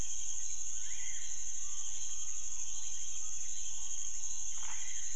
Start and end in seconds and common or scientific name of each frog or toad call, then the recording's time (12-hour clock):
4.5	4.8	Chaco tree frog
10:00pm